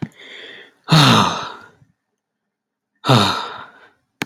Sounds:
Sigh